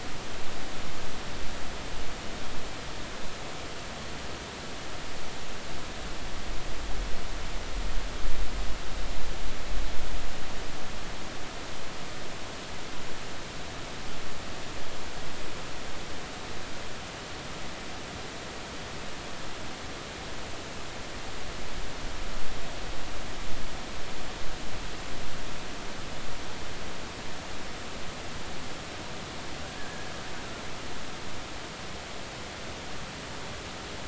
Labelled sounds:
29.8	30.1	killer whale, 1.5 to 1.8 kHz

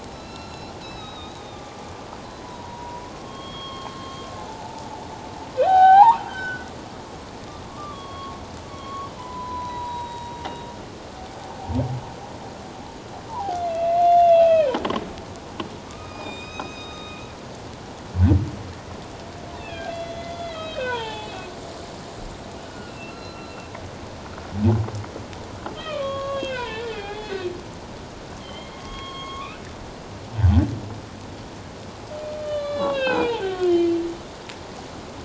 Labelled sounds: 0.0	1.6	humpback whale, 1.2 to 5.6 kHz
2.4	4.9	humpback whale, 0.78 to 4.4 kHz
5.6	6.7	humpback whale, 0.78 to 4.1 kHz
7.7	8.4	humpback whale, 1.0 to 3.6 kHz
8.7	10.4	humpback whale, 0.91 to 4.0 kHz
11.3	11.6	humpback whale, 0.78 to 0.94 kHz
13.3	14.8	humpback whale, 0.78 to 4.2 kHz
15.9	17.3	humpback whale, 1.2 to 6.3 kHz
19.6	21.4	humpback whale, 0.81 to 4.2 kHz
22.7	23.5	humpback whale, 1.3 to 4.2 kHz
25.7	27.5	humpback whale, 0.78 to 4.3 kHz
28.4	29.6	humpback whale, 0.97 to 6.6 kHz
32.3	34.0	humpback whale, 0.78 to 5.3 kHz

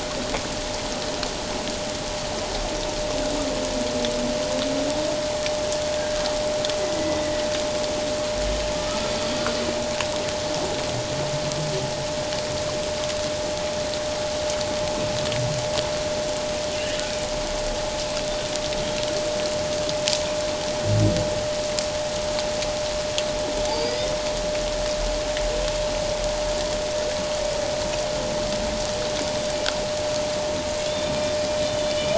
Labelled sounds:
6.0	6.3	killer whale, Bigg's (transient), call T01, 1.5 to 1.7 kHz
6.9	7.2	killer whale, Bigg's (transient), call T02, 1.9 to 2.0 kHz
8.7	9.0	humpback whale, 1.2 to 1.4 kHz
23.7	24.1	humpback whale, 4.5 to 5.3 kHz
30.9	31.9	humpback whale, 2.9 to 3.7 kHz

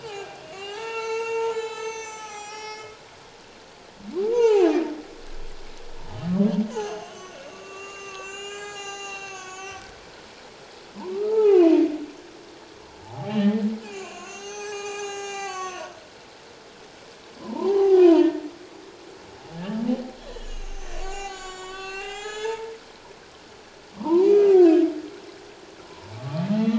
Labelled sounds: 0.0	2.9	humpback whale, 0.78 to 7.7 kHz
4.3	4.7	humpback whale, 0.78 to 7.5 kHz
6.7	9.8	humpback whale, 0.78 to 7.8 kHz
11.1	11.8	humpback whale, 0.78 to 3.2 kHz
13.0	15.9	humpback whale, 0.78 to 8.0 kHz
17.4	18.3	humpback whale, 0.78 to 1.2 kHz
19.6	19.8	humpback whale, 1.6 to 1.8 kHz
20.3	22.7	humpback whale, 0.78 to 7.6 kHz
23.9	24.7	humpback whale, 0.84 to 2.6 kHz
26.2	26.7	humpback whale, 1.1 to 2.1 kHz

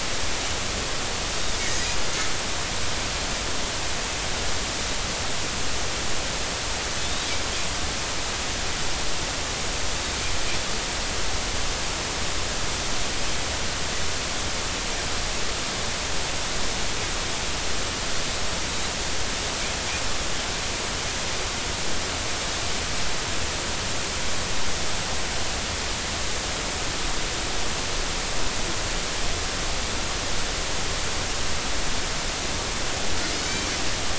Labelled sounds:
7.0	7.3	Pacific white-sided dolphin, 3.3 to 3.9 kHz

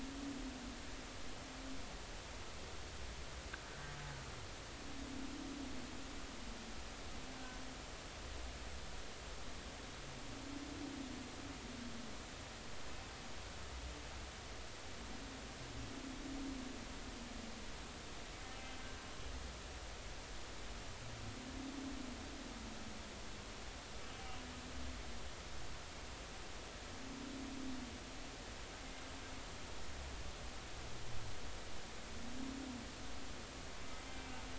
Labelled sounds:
7.3	7.6	humpback whale, 1.5 to 1.6 kHz

